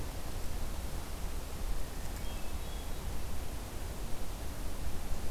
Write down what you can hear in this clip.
Hermit Thrush